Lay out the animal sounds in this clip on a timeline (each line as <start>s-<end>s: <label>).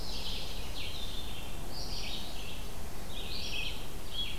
0.0s-0.9s: Pine Warbler (Setophaga pinus)
0.0s-4.4s: Red-eyed Vireo (Vireo olivaceus)